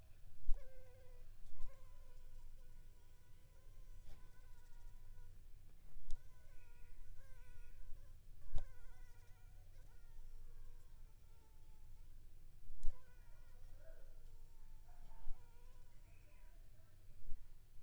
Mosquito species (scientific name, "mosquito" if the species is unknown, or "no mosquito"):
Anopheles funestus s.l.